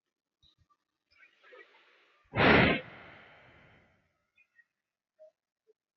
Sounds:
Sigh